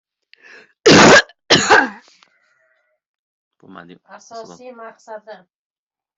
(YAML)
expert_labels:
- quality: good
  cough_type: wet
  dyspnea: false
  wheezing: false
  stridor: false
  choking: false
  congestion: false
  nothing: true
  diagnosis: upper respiratory tract infection
  severity: mild